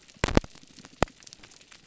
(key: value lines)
label: biophony
recorder: SoundTrap 300